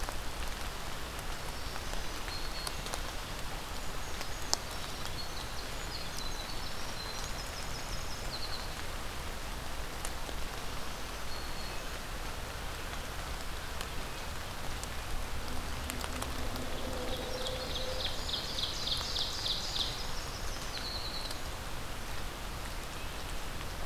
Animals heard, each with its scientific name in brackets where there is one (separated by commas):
Black-throated Green Warbler (Setophaga virens), Ovenbird (Seiurus aurocapilla), Brown Creeper (Certhia americana), Winter Wren (Troglodytes hiemalis)